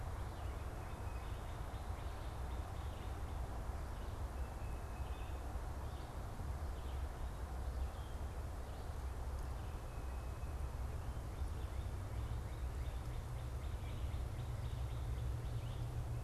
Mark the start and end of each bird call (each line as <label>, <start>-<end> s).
Red-eyed Vireo (Vireo olivaceus), 0.2-16.2 s
unidentified bird, 0.6-1.5 s
Northern Cardinal (Cardinalis cardinalis), 0.9-3.3 s
Tufted Titmouse (Baeolophus bicolor), 3.9-5.5 s
Tufted Titmouse (Baeolophus bicolor), 9.6-10.7 s
Northern Cardinal (Cardinalis cardinalis), 11.3-15.6 s